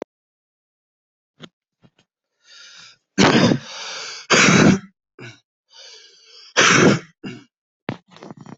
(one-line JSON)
{"expert_labels": [{"quality": "ok", "cough_type": "wet", "dyspnea": false, "wheezing": false, "stridor": false, "choking": false, "congestion": false, "nothing": true, "diagnosis": "healthy cough", "severity": "pseudocough/healthy cough"}], "age": 33, "gender": "male", "respiratory_condition": false, "fever_muscle_pain": false, "status": "symptomatic"}